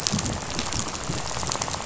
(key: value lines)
label: biophony, rattle
recorder: SoundTrap 500